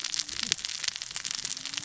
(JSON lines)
{"label": "biophony, cascading saw", "recorder": "SoundTrap 600 or HydroMoth"}